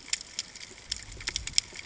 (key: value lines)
label: ambient
recorder: HydroMoth